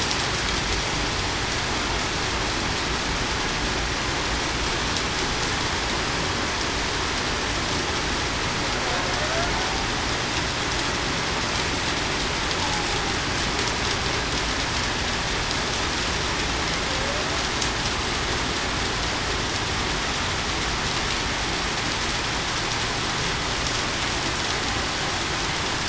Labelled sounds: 9.2	9.5	killer whale, Bigg's (transient), 0.58 to 0.73 kHz

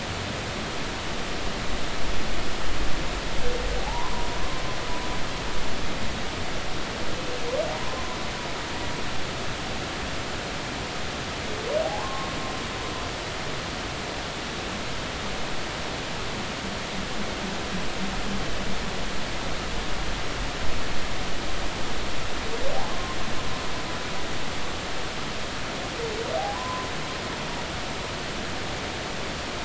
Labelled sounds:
3.8	4.3	humpback whale, 0.80 to 1.1 kHz
7.7	8.2	humpback whale, 0.93 to 1.1 kHz
11.8	12.3	humpback whale, 0.80 to 1.1 kHz
26.5	26.9	humpback whale, 0.96 to 1.1 kHz

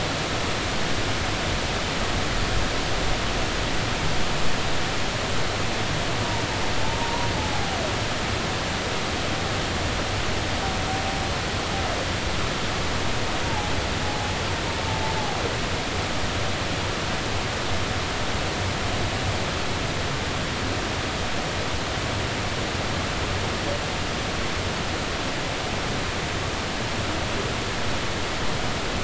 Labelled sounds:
7.0	7.8	humpback whale, 0.80 to 1.1 kHz
13.5	13.7	humpback whale, 0.80 to 0.96 kHz

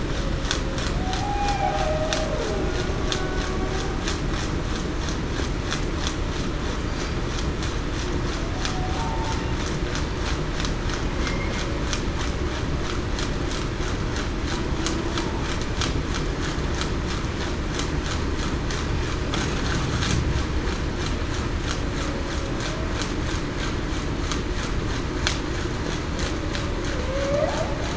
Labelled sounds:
0.9	2.7	humpback whale, 0.33 to 0.87 kHz
6.8	7.2	humpback whale, 4.6 to 4.8 kHz
8.7	9.1	humpback whale, 0.70 to 0.80 kHz
27.1	27.6	humpback whale, 0.49 to 0.70 kHz

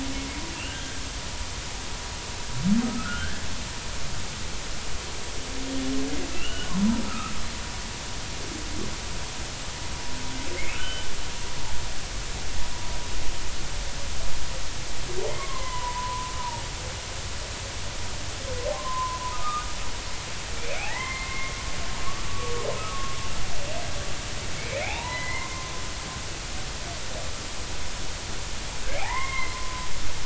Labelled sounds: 0.7	0.9	humpback whale, 1.4 to 1.6 kHz
2.8	3.4	humpback whale, 1.2 to 1.8 kHz
6.3	6.7	humpback whale, 1.2 to 3.0 kHz
7.0	7.3	humpback whale, 1.2 to 1.4 kHz
10.6	11.1	humpback whale, 1.3 to 3.1 kHz
15.3	16.3	humpback whale, 0.86 to 2.2 kHz
18.7	19.7	humpback whale, 0.96 to 1.3 kHz
20.6	21.5	humpback whale, 0.80 to 2.8 kHz
22.3	22.5	humpback whale, 1.1 to 1.2 kHz
22.9	23.1	humpback whale, 1.1 to 1.2 kHz
24.6	25.7	humpback whale, 0.80 to 2.8 kHz
29.0	29.9	humpback whale, 0.80 to 2.2 kHz

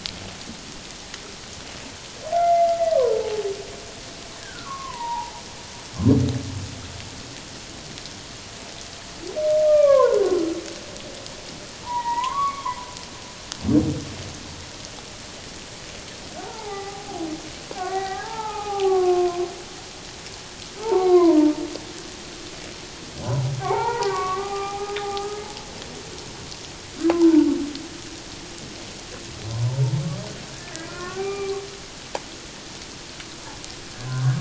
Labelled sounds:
2.3	3.4	humpback whale, 0.81 to 2.1 kHz
4.4	5.4	humpback whale, 0.78 to 1.8 kHz
9.6	10.6	humpback whale, 0.88 to 2.4 kHz
11.8	12.8	humpback whale, 0.84 to 2.3 kHz
16.4	19.4	humpback whale, 0.78 to 2.1 kHz
20.8	21.5	humpback whale, 0.78 to 2.2 kHz
23.2	25.4	humpback whale, 0.78 to 2.5 kHz
27.1	27.5	humpback whale, 0.78 to 1.1 kHz
29.5	29.8	humpback whale, 0.84 to 1.1 kHz
30.9	31.6	humpback whale, 0.78 to 2.5 kHz

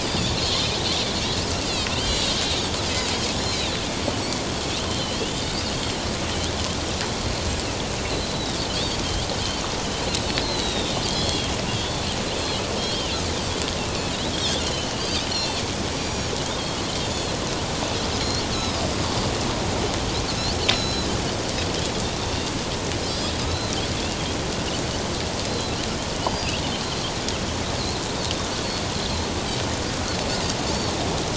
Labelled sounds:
0.0	0.8	Pacific white-sided dolphin, 3.0 to 5.1 kHz
1.9	3.1	Pacific white-sided dolphin, 2.5 to 5.2 kHz
4.9	6.0	Pacific white-sided dolphin, 2.9 to 4.5 kHz
8.1	8.6	Pacific white-sided dolphin, 3.6 to 4.4 kHz
10.4	11.5	Pacific white-sided dolphin, 3.1 to 4.3 kHz
11.8	13.2	Pacific white-sided dolphin, 2.6 to 3.6 kHz
14.3	16.3	Pacific white-sided dolphin, 2.6 to 7.0 kHz
18.2	18.8	Pacific white-sided dolphin, 3.8 to 5.4 kHz
20.7	21.1	Pacific white-sided dolphin, 3.8 to 6.8 kHz
23.5	23.7	Pacific white-sided dolphin, 3.8 to 4.2 kHz
25.5	26.5	Pacific white-sided dolphin, 3.8 to 4.9 kHz

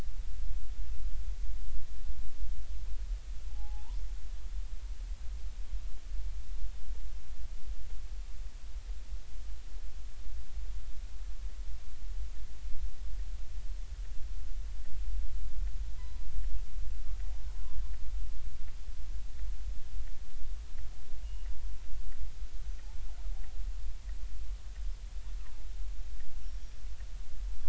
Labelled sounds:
3.5	4.0	killer whale, northern resident, G clan, 0.80 to 1.1 kHz
16.0	16.2	killer whale, northern resident, G clan, 0.93 to 1.1 kHz
21.2	21.5	killer whale, northern resident, G clan, 2.8 to 2.9 kHz

